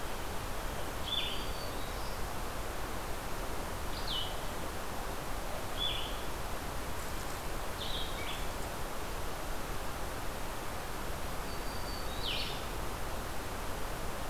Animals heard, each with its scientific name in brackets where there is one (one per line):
Blue-headed Vireo (Vireo solitarius)
Black-throated Green Warbler (Setophaga virens)